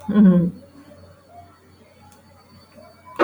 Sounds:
Laughter